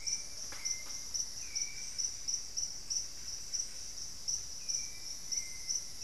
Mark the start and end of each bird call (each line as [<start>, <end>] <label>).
[0.00, 6.03] Hauxwell's Thrush (Turdus hauxwelli)
[0.00, 6.03] Plumbeous Pigeon (Patagioenas plumbea)
[0.00, 6.03] Solitary Black Cacique (Cacicus solitarius)
[4.67, 6.03] Black-faced Antthrush (Formicarius analis)